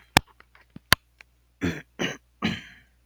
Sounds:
Throat clearing